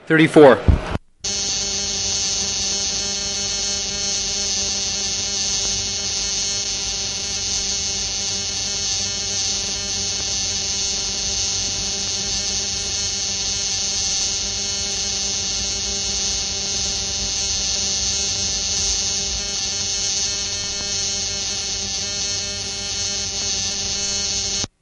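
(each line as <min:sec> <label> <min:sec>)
0:00.1 A man speaks while a crowd yells in the background. 0:01.1
0:01.2 A constant buzzing with slight vibrations. 0:24.7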